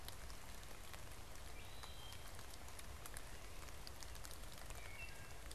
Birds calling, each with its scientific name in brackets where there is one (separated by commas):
Wood Thrush (Hylocichla mustelina)